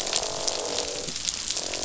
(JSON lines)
{"label": "biophony, croak", "recorder": "SoundTrap 500"}